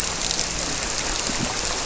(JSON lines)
{"label": "biophony, grouper", "recorder": "SoundTrap 300"}